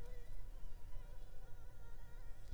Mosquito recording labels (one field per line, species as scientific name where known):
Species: Anopheles arabiensis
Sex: female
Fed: unfed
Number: one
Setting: cup